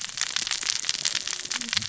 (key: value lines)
label: biophony, cascading saw
recorder: SoundTrap 600 or HydroMoth